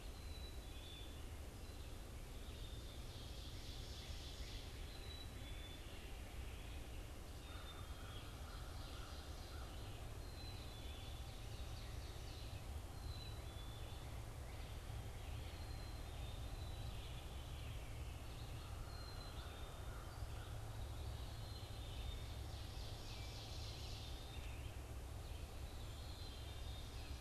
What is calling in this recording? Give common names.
Black-capped Chickadee, Red-eyed Vireo, Ovenbird, American Crow, Veery